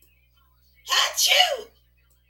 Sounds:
Sneeze